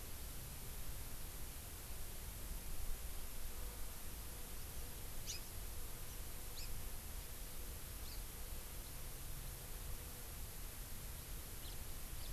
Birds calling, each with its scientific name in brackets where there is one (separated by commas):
House Finch (Haemorhous mexicanus)